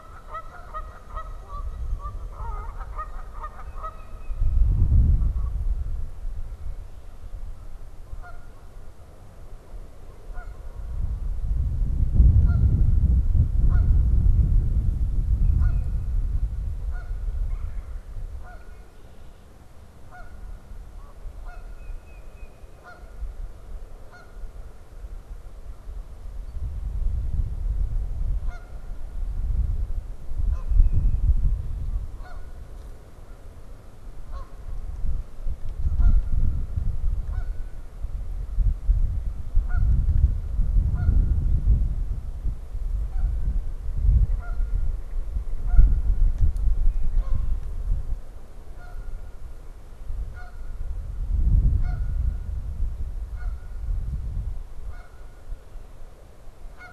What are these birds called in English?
Canada Goose, Tufted Titmouse, Red-bellied Woodpecker, Red-winged Blackbird